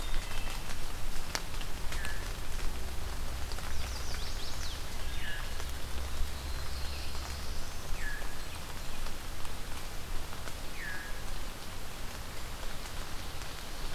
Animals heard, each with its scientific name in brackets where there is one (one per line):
Black-throated Blue Warbler (Setophaga caerulescens)
Wood Thrush (Hylocichla mustelina)
Chestnut-sided Warbler (Setophaga pensylvanica)
Veery (Catharus fuscescens)